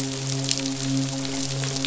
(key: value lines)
label: biophony, midshipman
recorder: SoundTrap 500